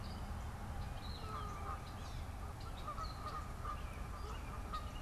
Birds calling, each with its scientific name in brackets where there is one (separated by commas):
Canada Goose (Branta canadensis)